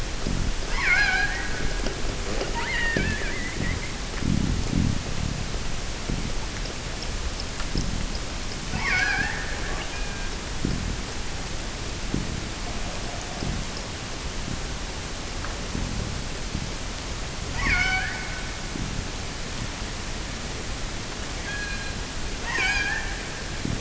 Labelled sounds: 0.5	1.6	killer whale, offshore, 0.50 to 7.3 kHz
2.3	4.1	killer whale, offshore, 0.93 to 4.9 kHz
8.7	10.5	killer whale, offshore, 0.55 to 6.3 kHz
17.4	18.5	killer whale, offshore, 0.48 to 7.1 kHz
21.4	22.1	killer whale, offshore, 1.4 to 4.5 kHz
22.4	23.3	killer whale, offshore, 0.52 to 7.9 kHz

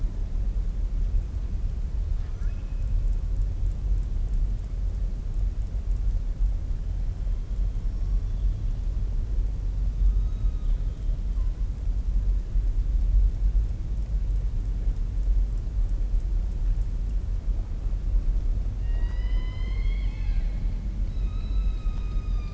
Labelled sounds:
2.1	2.8	killer whale, southern resident, 1.0 to 4.3 kHz
7.8	8.2	killer whale, southern resident, 5.4 to 5.8 kHz
10.2	11.0	killer whale, southern resident, 1.2 to 4.7 kHz
18.7	20.6	killer whale, southern resident, 0.71 to 5.3 kHz

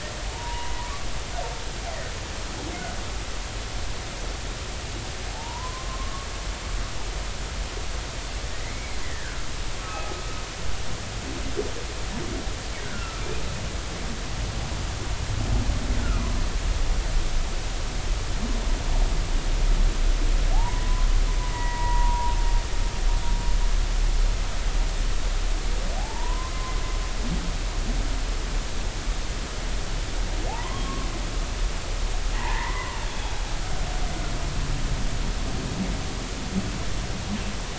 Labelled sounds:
0.2	0.9	humpback whale, 0.80 to 1.1 kHz
5.3	6.3	humpback whale, 0.80 to 1.2 kHz
8.6	9.5	humpback whale, 1.2 to 2.3 kHz
9.8	10.1	humpback whale, 1.2 to 1.3 kHz
12.8	13.2	humpback whale, 1.2 to 1.6 kHz
16.0	16.4	humpback whale, 0.96 to 1.6 kHz
20.5	21.1	humpback whale, 0.80 to 1.1 kHz
21.5	22.3	humpback whale, 0.86 to 2.0 kHz
26.0	26.5	humpback whale, 0.80 to 1.1 kHz
30.5	31.1	humpback whale, 0.80 to 1.2 kHz
32.3	33.0	humpback whale, 0.80 to 2.1 kHz

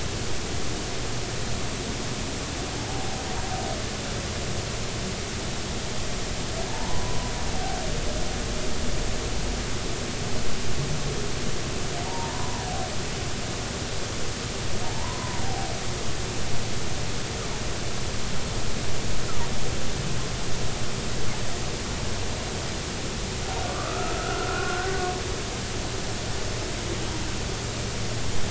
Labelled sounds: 6.7	7.3	humpback whale, 0.83 to 1.1 kHz
12.0	12.6	humpback whale, 0.86 to 1.1 kHz
14.9	15.4	humpback whale, 0.86 to 1.1 kHz
23.7	25.0	humpback whale, 1.0 to 1.6 kHz

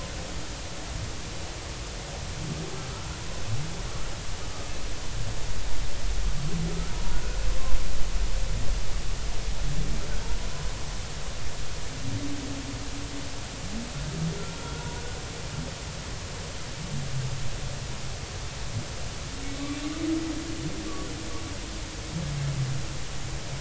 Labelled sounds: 2.9	3.2	humpback whale, 1.2 to 1.5 kHz

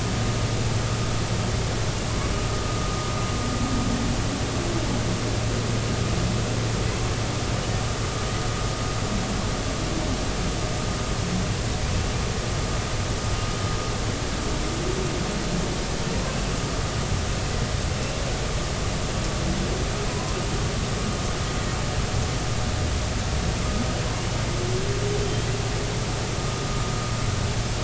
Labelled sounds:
20.1	20.4	humpback whale, 0.93 to 1.1 kHz

